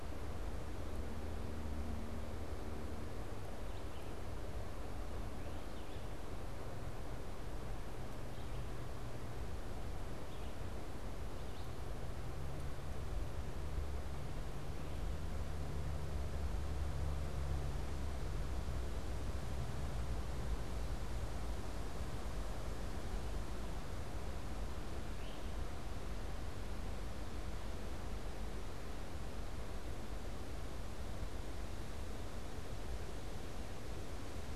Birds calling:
Great Crested Flycatcher (Myiarchus crinitus)
Red-eyed Vireo (Vireo olivaceus)

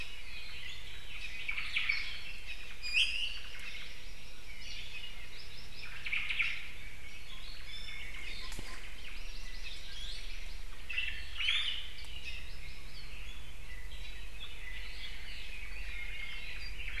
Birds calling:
Hawaii Amakihi (Chlorodrepanis virens)
Apapane (Himatione sanguinea)
Omao (Myadestes obscurus)
Iiwi (Drepanis coccinea)

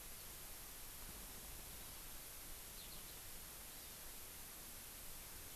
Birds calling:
Eurasian Skylark (Alauda arvensis)
Hawaii Amakihi (Chlorodrepanis virens)

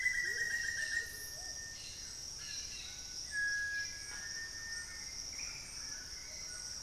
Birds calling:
Cinereous Tinamou (Crypturellus cinereus)
Plumbeous Pigeon (Patagioenas plumbea)
Amazonian Motmot (Momotus momota)
White-throated Toucan (Ramphastos tucanus)
Black-faced Antthrush (Formicarius analis)
Hauxwell's Thrush (Turdus hauxwelli)

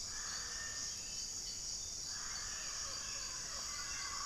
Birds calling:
Hauxwell's Thrush (Turdus hauxwelli)
Cinereous Tinamou (Crypturellus cinereus)

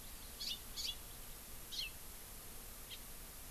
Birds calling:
House Finch (Haemorhous mexicanus)

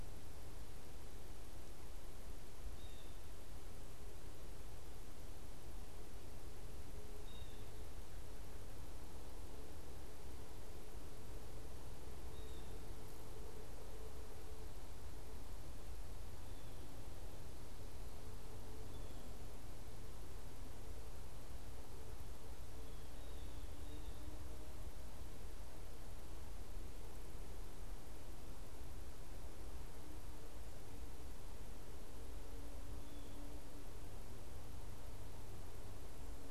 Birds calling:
Blue Jay (Cyanocitta cristata)

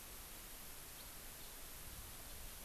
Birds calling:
House Finch (Haemorhous mexicanus)

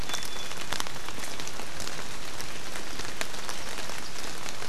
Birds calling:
Iiwi (Drepanis coccinea)

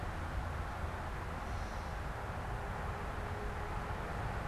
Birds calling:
Gray Catbird (Dumetella carolinensis)

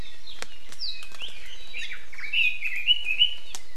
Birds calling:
Red-billed Leiothrix (Leiothrix lutea)

